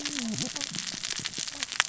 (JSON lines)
{"label": "biophony, cascading saw", "recorder": "SoundTrap 600 or HydroMoth"}